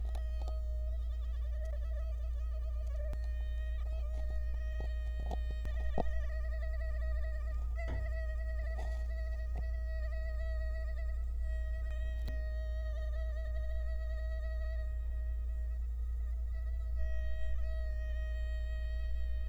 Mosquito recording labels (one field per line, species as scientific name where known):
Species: Culex quinquefasciatus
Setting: cup